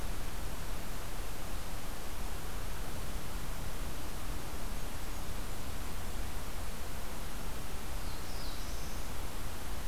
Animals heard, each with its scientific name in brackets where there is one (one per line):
Blackburnian Warbler (Setophaga fusca)
Black-throated Blue Warbler (Setophaga caerulescens)